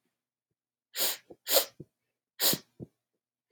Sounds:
Sniff